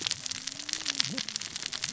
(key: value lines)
label: biophony, cascading saw
recorder: SoundTrap 600 or HydroMoth